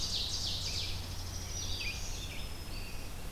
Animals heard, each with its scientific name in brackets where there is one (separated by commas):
Black-throated Green Warbler (Setophaga virens), Ovenbird (Seiurus aurocapilla), Red-eyed Vireo (Vireo olivaceus), Dark-eyed Junco (Junco hyemalis)